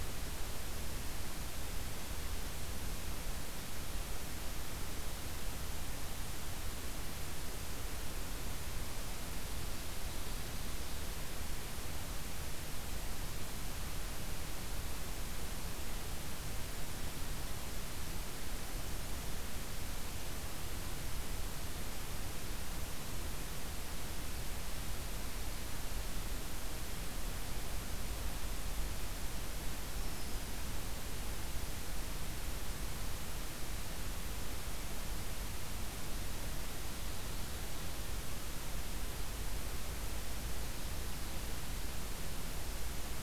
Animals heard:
forest ambience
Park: Acadia National Park